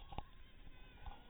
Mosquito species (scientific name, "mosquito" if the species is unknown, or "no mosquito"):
mosquito